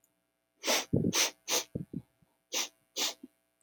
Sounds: Sniff